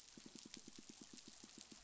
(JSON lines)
{"label": "biophony, pulse", "recorder": "SoundTrap 500"}